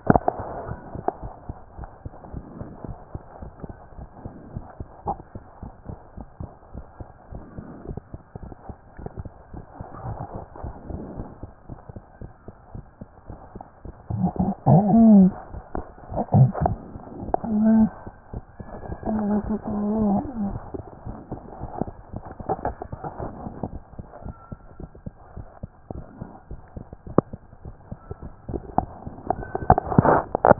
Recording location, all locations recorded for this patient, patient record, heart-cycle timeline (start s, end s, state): mitral valve (MV)
aortic valve (AV)+mitral valve (MV)
#Age: Child
#Sex: Female
#Height: 105.0 cm
#Weight: 22.4 kg
#Pregnancy status: False
#Murmur: Absent
#Murmur locations: nan
#Most audible location: nan
#Systolic murmur timing: nan
#Systolic murmur shape: nan
#Systolic murmur grading: nan
#Systolic murmur pitch: nan
#Systolic murmur quality: nan
#Diastolic murmur timing: nan
#Diastolic murmur shape: nan
#Diastolic murmur grading: nan
#Diastolic murmur pitch: nan
#Diastolic murmur quality: nan
#Outcome: Abnormal
#Campaign: 2014 screening campaign
0.00	1.48	unannotated
1.48	1.56	S2
1.56	1.78	diastole
1.78	1.88	S1
1.88	2.04	systole
2.04	2.12	S2
2.12	2.32	diastole
2.32	2.44	S1
2.44	2.58	systole
2.58	2.68	S2
2.68	2.86	diastole
2.86	2.98	S1
2.98	3.12	systole
3.12	3.22	S2
3.22	3.42	diastole
3.42	3.52	S1
3.52	3.64	systole
3.64	3.76	S2
3.76	3.98	diastole
3.98	4.08	S1
4.08	4.24	systole
4.24	4.32	S2
4.32	4.54	diastole
4.54	4.64	S1
4.64	4.78	systole
4.78	4.88	S2
4.88	5.06	diastole
5.06	5.18	S1
5.18	5.34	systole
5.34	5.44	S2
5.44	5.62	diastole
5.62	5.72	S1
5.72	5.88	systole
5.88	5.98	S2
5.98	6.18	diastole
6.18	6.28	S1
6.28	6.40	systole
6.40	6.50	S2
6.50	6.74	diastole
6.74	6.84	S1
6.84	7.00	systole
7.00	7.08	S2
7.08	7.32	diastole
7.32	7.42	S1
7.42	7.56	systole
7.56	7.66	S2
7.66	7.88	diastole
7.88	7.98	S1
7.98	8.12	systole
8.12	8.22	S2
8.22	8.42	diastole
8.42	8.52	S1
8.52	8.68	systole
8.68	8.76	S2
8.76	9.00	diastole
9.00	9.08	S1
9.08	9.20	systole
9.20	9.32	S2
9.32	9.58	diastole
9.58	9.64	S1
9.64	9.78	systole
9.78	9.84	S2
9.84	9.92	diastole
9.92	30.59	unannotated